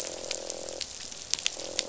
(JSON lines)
{"label": "biophony, croak", "recorder": "SoundTrap 500"}